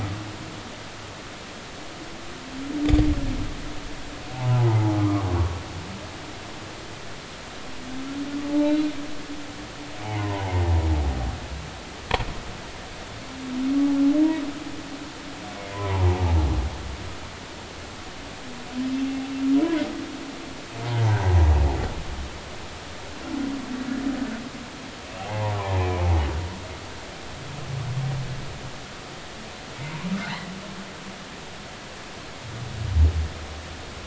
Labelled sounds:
4.3	5.3	humpback whale, 0.80 to 1.2 kHz
8.5	8.9	humpback whale, 0.83 to 4.0 kHz
10.0	10.5	humpback whale, 0.80 to 1.1 kHz
15.7	16.0	humpback whale, 0.83 to 1.1 kHz
25.2	26.1	humpback whale, 0.80 to 2.6 kHz

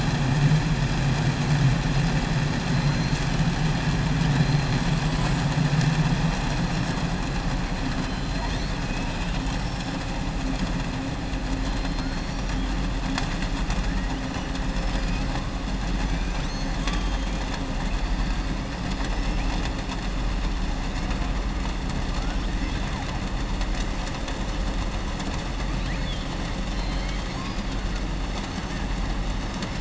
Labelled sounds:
8.8	10.0	killer whale, southern resident, 2.5 to 6.6 kHz
11.6	12.5	killer whale, southern resident, 3.4 to 5.8 kHz
14.7	15.2	killer whale, southern resident, 3.9 to 5.8 kHz
25.7	26.3	killer whale, southern resident, 1.8 to 4.5 kHz
26.6	27.7	killer whale, southern resident, 2.1 to 5.6 kHz

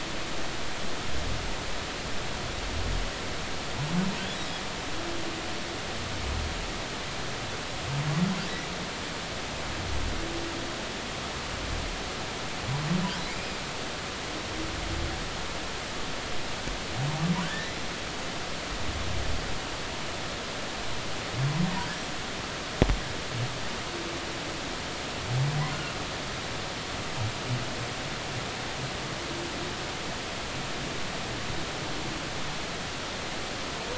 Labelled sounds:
13.3	13.6	humpback whale, 2.0 to 2.6 kHz

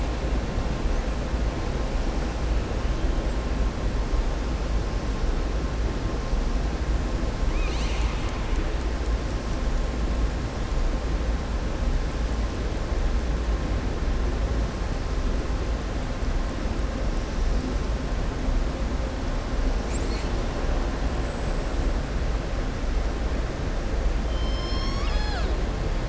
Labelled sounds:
7.4	8.6	killer whale, southern resident, 1.3 to 7.8 kHz

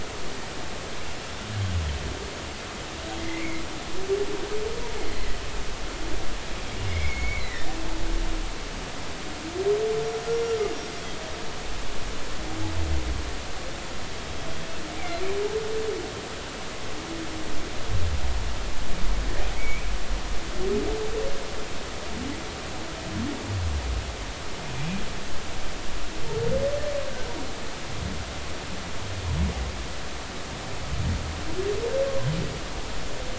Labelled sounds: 3.2	3.6	humpback whale, 2.0 to 2.4 kHz
5.1	5.4	humpback whale, 1.9 to 2.1 kHz
6.9	7.7	humpback whale, 1.7 to 5.2 kHz
10.7	11.0	humpback whale, 5.5 to 5.6 kHz
15.0	15.2	humpback whale, 2.0 to 2.4 kHz
19.5	19.9	humpback whale, 2.1 to 2.6 kHz

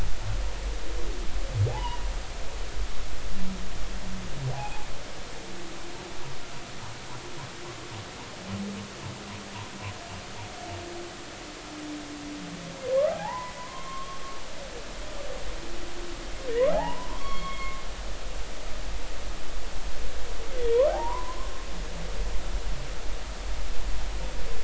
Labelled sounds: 1.7	2.0	humpback whale, 0.80 to 3.0 kHz
4.5	4.9	humpback whale, 0.80 to 0.93 kHz
13.1	14.2	humpback whale, 0.80 to 3.3 kHz
16.7	17.8	humpback whale, 0.80 to 4.5 kHz
20.9	21.5	humpback whale, 0.80 to 1.2 kHz

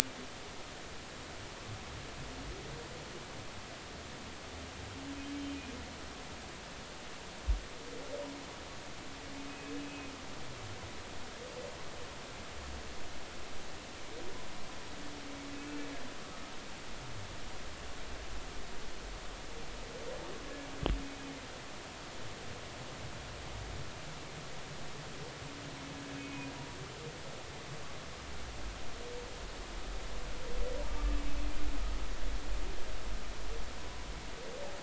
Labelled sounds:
5.5	5.8	humpback whale, 2.4 to 2.5 kHz
9.5	10.1	humpback whale, 2.4 to 2.6 kHz
26.1	26.5	humpback whale, 2.4 to 2.6 kHz

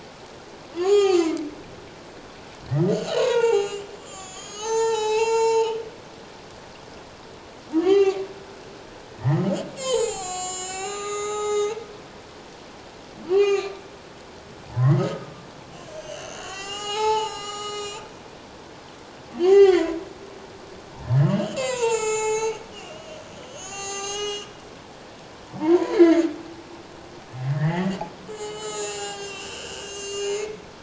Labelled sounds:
0.8	1.4	humpback whale, 0.78 to 7.4 kHz
2.9	5.8	humpback whale, 0.78 to 7.9 kHz
7.8	8.2	humpback whale, 0.78 to 6.4 kHz
9.8	11.9	humpback whale, 0.78 to 7.9 kHz
13.3	13.8	humpback whale, 0.78 to 7.0 kHz
14.7	15.0	humpback whale, 0.84 to 1.2 kHz
15.9	18.1	humpback whale, 0.78 to 7.9 kHz
19.4	20.0	humpback whale, 0.78 to 6.9 kHz
21.2	24.6	humpback whale, 0.78 to 7.9 kHz
25.6	26.2	humpback whale, 0.84 to 2.3 kHz
27.5	30.8	humpback whale, 0.78 to 8.0 kHz

